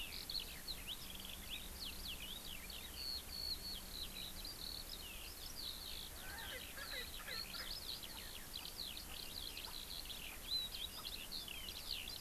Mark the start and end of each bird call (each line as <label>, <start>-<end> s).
Eurasian Skylark (Alauda arvensis), 0.0-12.2 s
Erckel's Francolin (Pternistis erckelii), 6.1-7.8 s
Erckel's Francolin (Pternistis erckelii), 8.1-8.2 s
Erckel's Francolin (Pternistis erckelii), 8.6-8.7 s
Erckel's Francolin (Pternistis erckelii), 9.1-9.2 s
Erckel's Francolin (Pternistis erckelii), 9.6-9.8 s
Erckel's Francolin (Pternistis erckelii), 10.3-10.4 s
Erckel's Francolin (Pternistis erckelii), 10.9-11.0 s